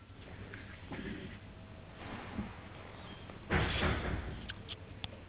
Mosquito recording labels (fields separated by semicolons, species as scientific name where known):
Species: no mosquito; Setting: insect culture